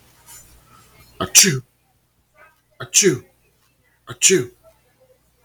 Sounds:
Sneeze